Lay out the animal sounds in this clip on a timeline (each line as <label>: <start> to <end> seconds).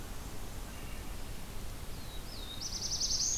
Wood Thrush (Hylocichla mustelina): 0.6 to 1.3 seconds
Black-throated Blue Warbler (Setophaga caerulescens): 1.8 to 3.4 seconds